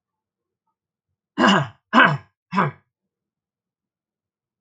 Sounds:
Throat clearing